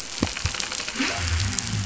{"label": "anthrophony, boat engine", "recorder": "SoundTrap 500"}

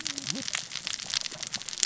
{"label": "biophony, cascading saw", "recorder": "SoundTrap 600 or HydroMoth"}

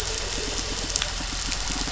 {"label": "biophony", "recorder": "SoundTrap 500"}
{"label": "anthrophony, boat engine", "recorder": "SoundTrap 500"}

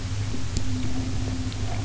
{"label": "anthrophony, boat engine", "recorder": "SoundTrap 300"}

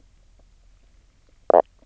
{"label": "biophony, knock croak", "recorder": "SoundTrap 300"}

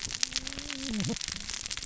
{"label": "biophony, cascading saw", "recorder": "SoundTrap 600 or HydroMoth"}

